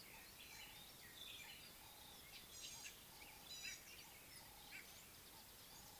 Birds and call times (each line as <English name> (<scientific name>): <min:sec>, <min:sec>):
White-browed Robin-Chat (Cossypha heuglini): 0:01.4
Gray-backed Camaroptera (Camaroptera brevicaudata): 0:02.7